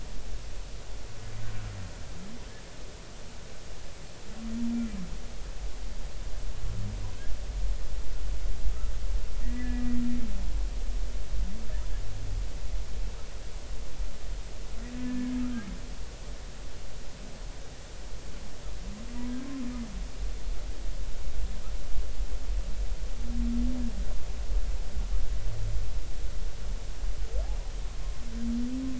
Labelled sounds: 9.4	9.9	humpback whale, 1.6 to 2.0 kHz
14.9	15.3	humpback whale, 1.6 to 1.8 kHz

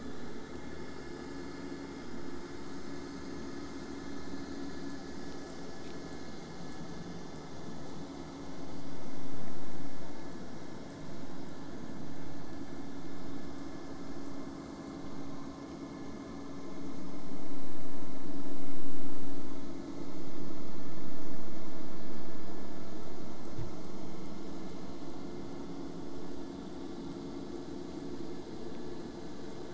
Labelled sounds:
0.0	5.0	vessel noise, 0 to 8.0 kHz

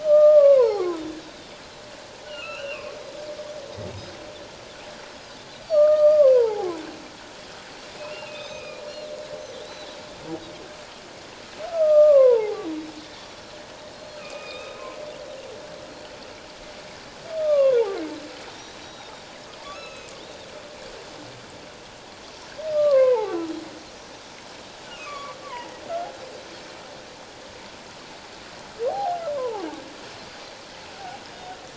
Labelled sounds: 0.0	1.0	humpback whale, 0.78 to 1.9 kHz
2.3	2.9	humpback whale, 1.2 to 3.0 kHz
5.7	6.7	humpback whale, 0.78 to 4.8 kHz
8.0	8.8	humpback whale, 2.2 to 4.2 kHz
11.6	12.7	humpback whale, 0.78 to 1.4 kHz
13.0	14.3	Pacific white-sided dolphin, 1.8 to 4.3 kHz
14.2	14.8	humpback whale, 2.2 to 3.8 kHz
17.4	18.0	humpback whale, 0.78 to 1.3 kHz
18.5	19.1	Pacific white-sided dolphin, 3.6 to 5.8 kHz
19.7	20.1	humpback whale, 1.2 to 6.7 kHz
22.7	23.4	humpback whale, 0.78 to 2.7 kHz
24.9	25.8	humpback whale, 0.81 to 2.9 kHz
28.9	29.6	humpback whale, 0.78 to 1.2 kHz
30.9	31.2	humpback whale, 0.78 to 0.88 kHz

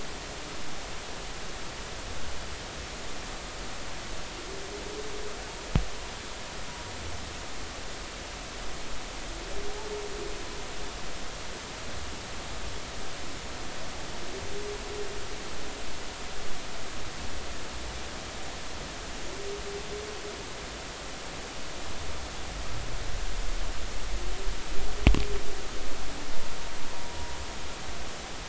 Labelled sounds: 26.9	27.2	humpback whale, 0.93 to 1.1 kHz

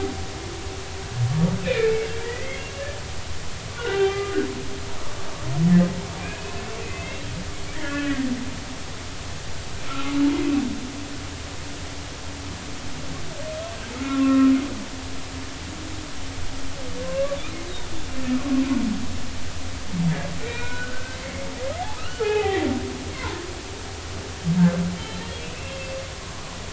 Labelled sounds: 1.6	2.7	humpback whale, 1.9 to 3.3 kHz
3.8	4.4	humpback whale, 0.80 to 3.2 kHz
6.2	6.5	humpback whale, 2.3 to 2.6 kHz
6.8	8.2	humpback whale, 1.4 to 2.8 kHz
9.9	10.1	humpback whale, 1.2 to 1.4 kHz
14.1	14.5	humpback whale, 1.0 to 1.4 kHz
17.0	17.4	humpback whale, 0.99 to 1.2 kHz
20.5	22.7	humpback whale, 0.80 to 3.0 kHz
23.1	23.4	humpback whale, 0.86 to 1.2 kHz
25.6	25.9	humpback whale, 2.1 to 2.2 kHz

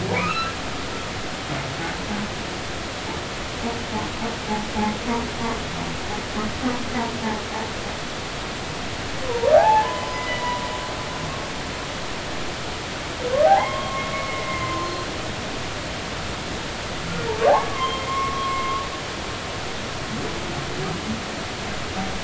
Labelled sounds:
0.1	0.5	humpback whale, 1.1 to 2.8 kHz
9.2	10.6	humpback whale, 0.80 to 5.1 kHz
13.5	14.9	humpback whale, 0.80 to 3.3 kHz
17.5	18.8	humpback whale, 0.80 to 3.3 kHz

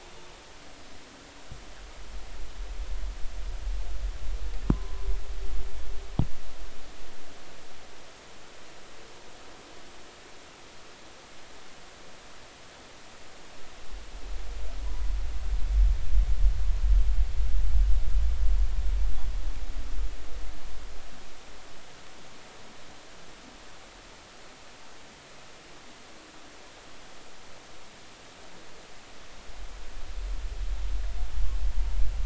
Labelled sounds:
4.7	5.1	humpback whale, 0.96 to 1.2 kHz

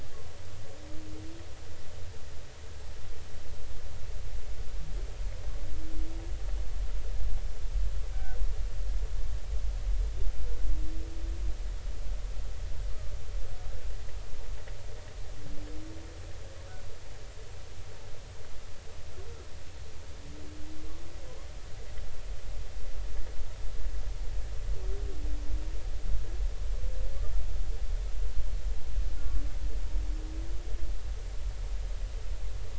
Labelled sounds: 8.1	8.4	humpback whale, 1.4 to 1.6 kHz

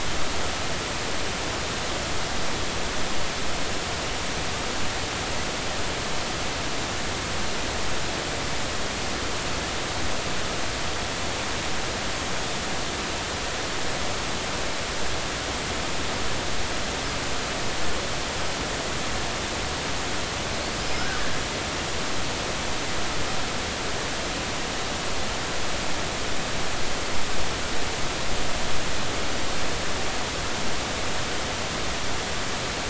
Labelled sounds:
20.8	21.1	killer whale, Bigg's (transient), 4.8 to 5.2 kHz

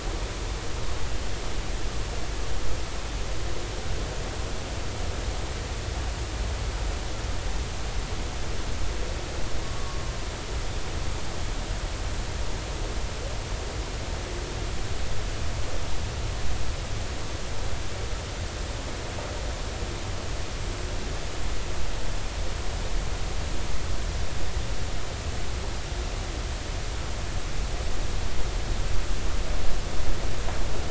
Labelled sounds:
9.6	10.0	humpback whale, 1.1 to 1.2 kHz

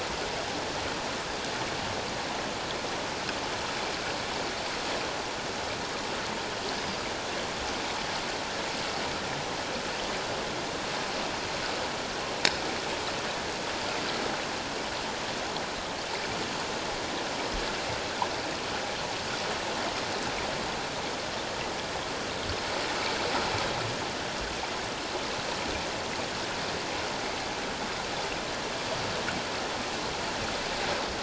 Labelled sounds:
6.7	7.0	Pacific white-sided dolphin, 4.5 to 5.1 kHz

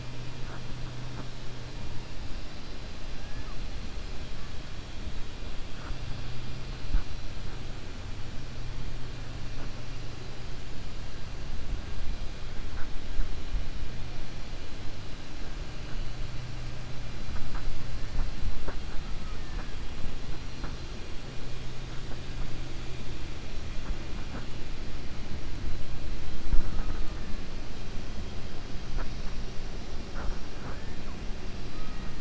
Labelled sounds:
3.2	3.6	killer whale, 0.81 to 2.2 kHz

